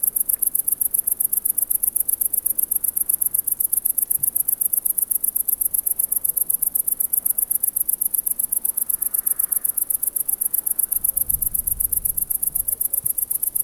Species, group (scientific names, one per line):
Tettigonia viridissima
Orthoptera